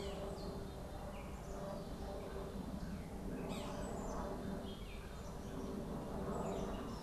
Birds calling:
Gray Catbird (Dumetella carolinensis)
Black-capped Chickadee (Poecile atricapillus)
Yellow-bellied Sapsucker (Sphyrapicus varius)

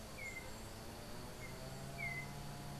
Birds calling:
Yellow-backed Oriole (Icterus chrysater)

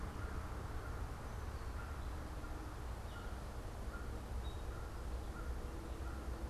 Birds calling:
American Crow (Corvus brachyrhynchos)

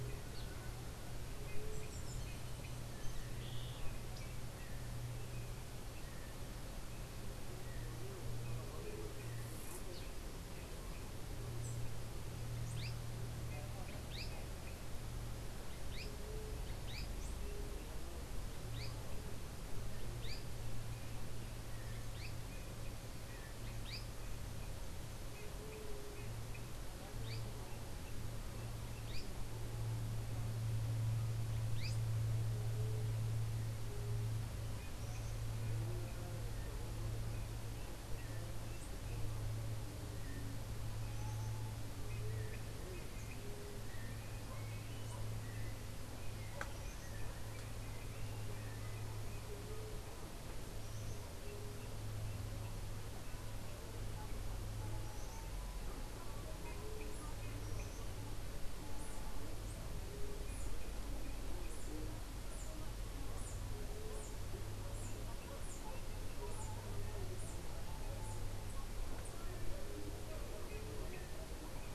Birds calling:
Azara's Spinetail (Synallaxis azarae)

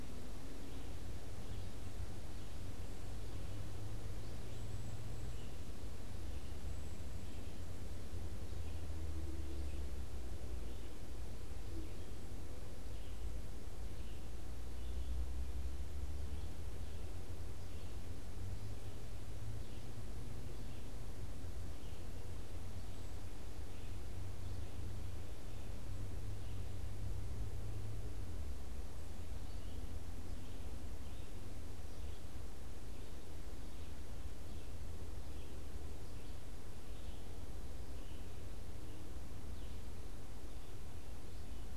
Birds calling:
Cedar Waxwing (Bombycilla cedrorum)
Red-eyed Vireo (Vireo olivaceus)

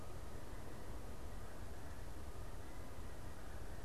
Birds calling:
Canada Goose (Branta canadensis)

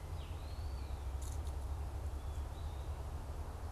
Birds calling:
Eastern Wood-Pewee (Contopus virens)

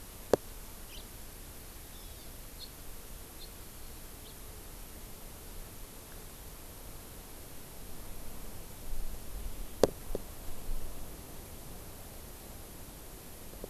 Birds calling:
Hawaii Amakihi (Chlorodrepanis virens)
House Finch (Haemorhous mexicanus)

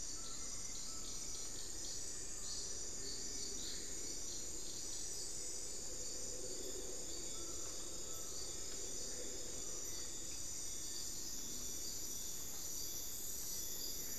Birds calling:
Black-faced Antthrush (Formicarius analis)
Buckley's Forest-Falcon (Micrastur buckleyi)

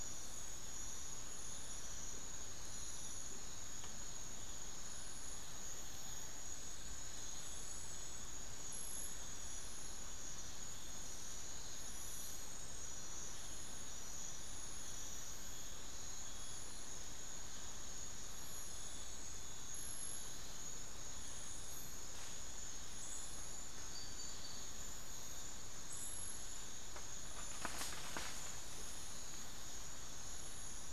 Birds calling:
Tawny-bellied Screech-Owl (Megascops watsonii)

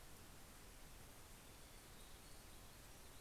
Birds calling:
Warbling Vireo (Vireo gilvus)

